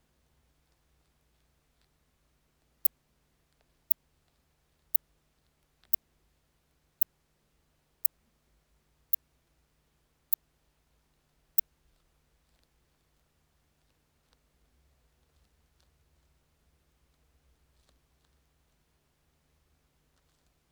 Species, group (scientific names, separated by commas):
Leptophyes laticauda, Orthoptera